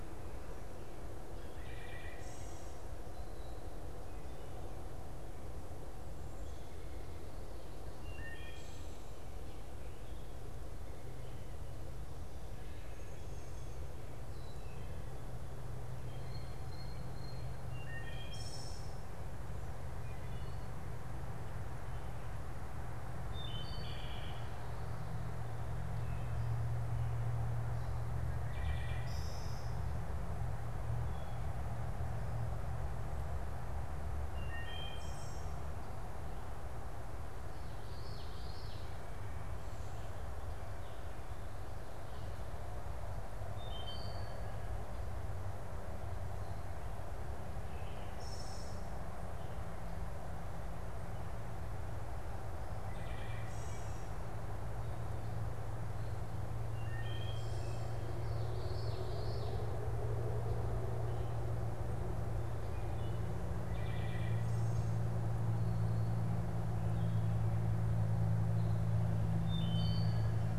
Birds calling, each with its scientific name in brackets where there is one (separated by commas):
Wood Thrush (Hylocichla mustelina), Common Yellowthroat (Geothlypis trichas), Blue Jay (Cyanocitta cristata)